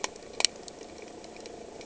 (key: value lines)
label: anthrophony, boat engine
recorder: HydroMoth